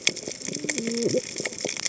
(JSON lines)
{"label": "biophony, cascading saw", "recorder": "HydroMoth"}